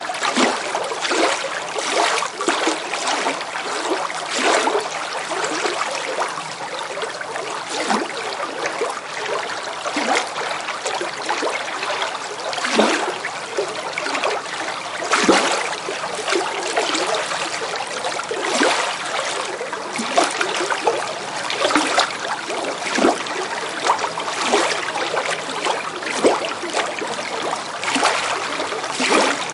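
Water splashing loudly outdoors. 0.1 - 29.5

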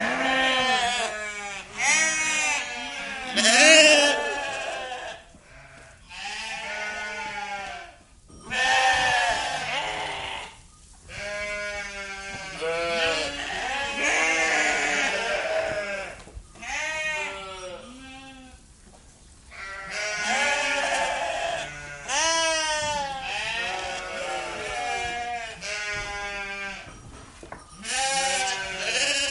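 A group of sheep bleats. 0.0 - 5.3
A group of sheep bleats. 6.1 - 7.8
A group of sheep bleats. 8.5 - 17.9
A group of sheep bleats. 19.5 - 26.8
A group of sheep bleats. 27.8 - 29.3

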